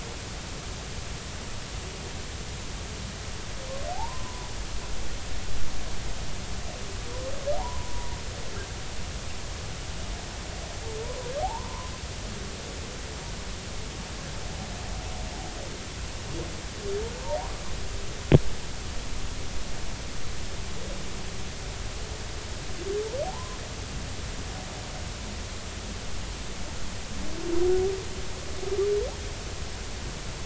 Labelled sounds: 3.9	4.5	humpback whale, 0.80 to 1.1 kHz
7.6	8.2	humpback whale, 0.80 to 1.1 kHz
11.0	11.9	humpback whale, 0.80 to 1.2 kHz
23.2	23.6	humpback whale, 0.80 to 1.1 kHz

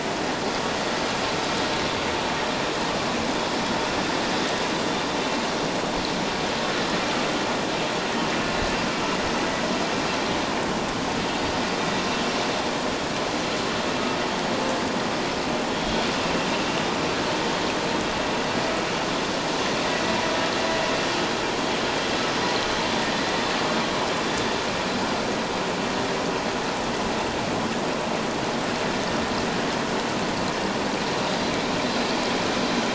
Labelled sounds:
15.7	16.0	vessel noise, 3.2 to 3.3 kHz

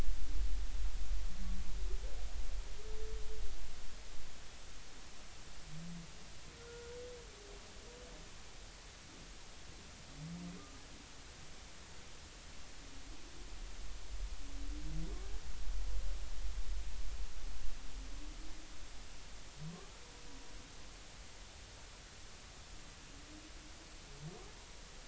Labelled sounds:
6.6	6.9	humpback whale, 1.3 to 1.5 kHz

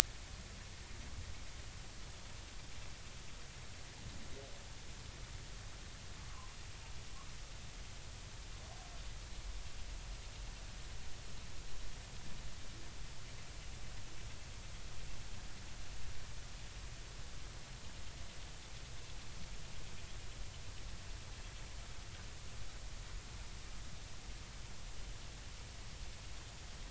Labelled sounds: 6.3	6.6	humpback whale, 0.96 to 1.2 kHz

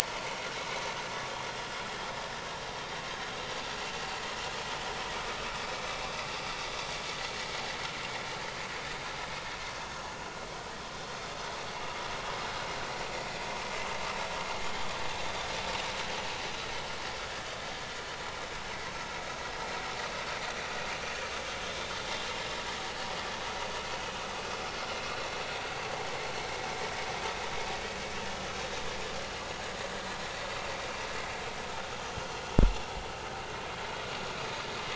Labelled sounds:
0.0	0.4	vessel noise, 0.83 to 1.1 kHz

